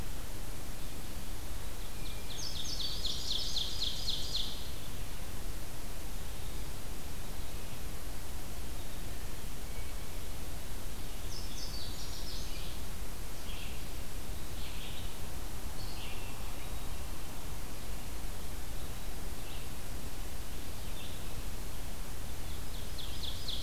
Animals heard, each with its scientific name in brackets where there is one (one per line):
Red-eyed Vireo (Vireo olivaceus)
Ovenbird (Seiurus aurocapilla)
Indigo Bunting (Passerina cyanea)